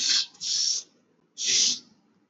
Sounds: Sneeze